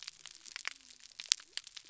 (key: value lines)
label: biophony
recorder: SoundTrap 300